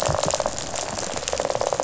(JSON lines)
{"label": "biophony, rattle", "recorder": "SoundTrap 500"}